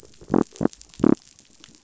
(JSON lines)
{"label": "biophony", "recorder": "SoundTrap 500"}